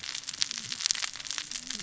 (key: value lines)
label: biophony, cascading saw
recorder: SoundTrap 600 or HydroMoth